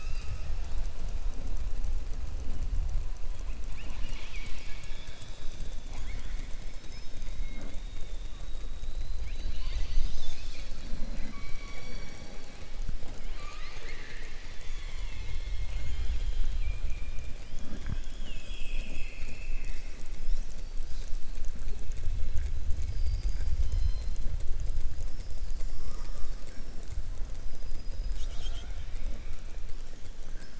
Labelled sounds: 5.8	6.5	killer whale, southern resident, 0.72 to 4.3 kHz

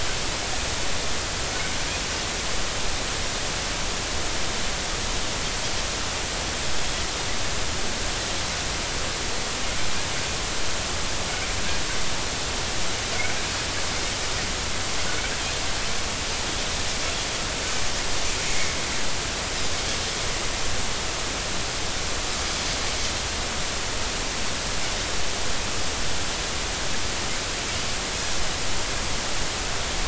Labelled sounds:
18.5	18.7	Pacific white-sided dolphin, 2.0 to 2.3 kHz

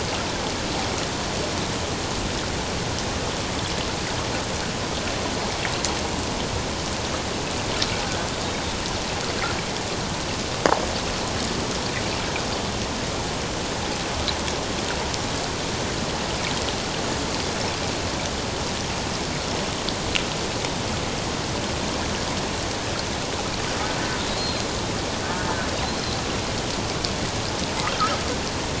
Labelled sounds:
24.4	24.7	killer whale, offshore, 4.1 to 4.3 kHz

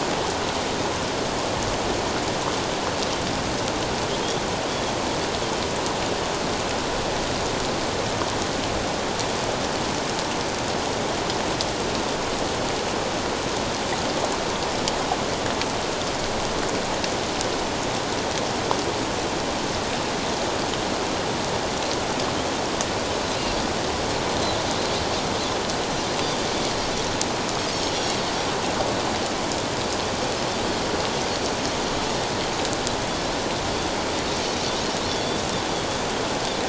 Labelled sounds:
23.4	23.7	Pacific white-sided dolphin, 4.6 to 4.8 kHz
27.9	28.2	Pacific white-sided dolphin, 3.2 to 3.5 kHz
35.1	35.4	Pacific white-sided dolphin, 3.3 to 3.6 kHz

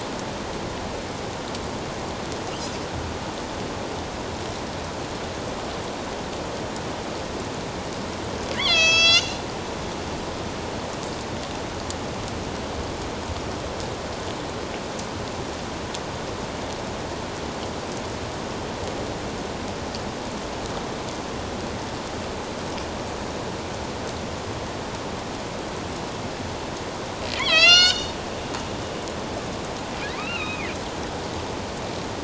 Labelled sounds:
8.5	9.4	killer whale, northern resident, A clan, AB subclan, call N01, 1.2 to 8.0 kHz
27.4	28.1	killer whale, northern resident, A clan, AB subclan, 1.2 to 8.0 kHz
30.0	30.7	killer whale, northern resident, A clan, AB subclan, 1.0 to 3.9 kHz

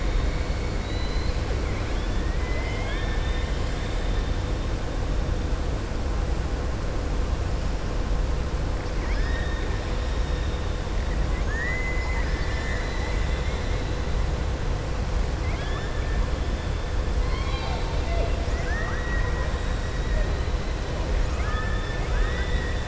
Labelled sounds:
0.7	1.4	killer whale, southern resident, 2.0 to 5.1 kHz
8.9	9.7	killer whale, southern resident, 1.2 to 5.5 kHz
11.3	12.3	killer whale, southern resident, 0.87 to 2.3 kHz
17.2	19.5	killer whale, southern resident, 0.51 to 4.9 kHz
21.2	22.8	killer whale, southern resident, 1.0 to 3.9 kHz

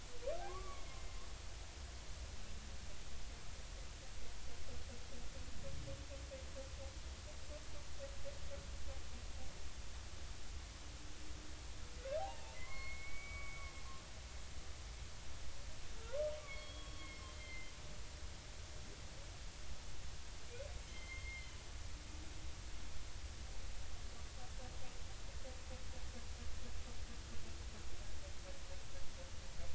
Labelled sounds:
0.5	1.0	humpback whale, 0.99 to 2.3 kHz
12.2	13.7	humpback whale, 0.80 to 4.4 kHz
16.4	17.7	humpback whale, 1.0 to 4.5 kHz
20.9	21.6	humpback whale, 2.0 to 3.3 kHz

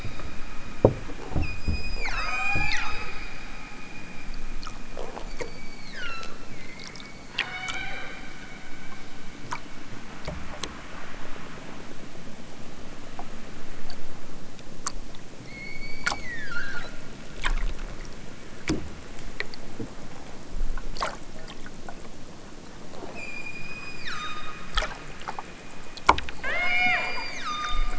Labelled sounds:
1.3	3.1	killer whale, southern Alaska resident, 0.32 to 8.0 kHz
5.1	6.5	killer whale, southern Alaska resident, 1.1 to 7.3 kHz
7.3	8.0	killer whale, southern Alaska resident, 0.50 to 5.6 kHz
15.4	16.9	killer whale, southern Alaska resident, 1.1 to 5.1 kHz
23.1	24.7	killer whale, southern Alaska resident, 0.83 to 8.0 kHz
26.4	27.9	killer whale, southern Alaska resident, 0.41 to 7.6 kHz

